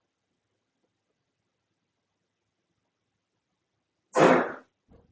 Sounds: Sneeze